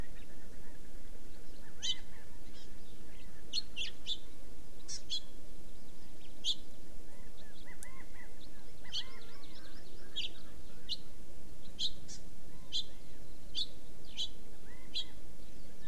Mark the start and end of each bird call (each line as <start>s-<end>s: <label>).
1.6s-2.2s: Chinese Hwamei (Garrulax canorus)
1.8s-2.0s: Hawaii Amakihi (Chlorodrepanis virens)
2.5s-2.7s: Hawaii Amakihi (Chlorodrepanis virens)
3.5s-4.2s: House Finch (Haemorhous mexicanus)
4.9s-5.0s: Hawaii Amakihi (Chlorodrepanis virens)
5.1s-5.3s: House Finch (Haemorhous mexicanus)
6.4s-6.6s: House Finch (Haemorhous mexicanus)
7.0s-8.3s: Chinese Hwamei (Garrulax canorus)
8.4s-10.1s: Hawaii Amakihi (Chlorodrepanis virens)
8.8s-9.8s: Chinese Hwamei (Garrulax canorus)
8.9s-9.0s: House Finch (Haemorhous mexicanus)
10.1s-10.3s: House Finch (Haemorhous mexicanus)
10.9s-11.0s: House Finch (Haemorhous mexicanus)
11.8s-11.9s: House Finch (Haemorhous mexicanus)
12.0s-12.2s: Hawaii Amakihi (Chlorodrepanis virens)
12.5s-13.2s: Chinese Hwamei (Garrulax canorus)
12.7s-12.8s: House Finch (Haemorhous mexicanus)
13.5s-13.7s: House Finch (Haemorhous mexicanus)
14.1s-14.3s: House Finch (Haemorhous mexicanus)
14.6s-15.2s: Chinese Hwamei (Garrulax canorus)
14.9s-15.1s: House Finch (Haemorhous mexicanus)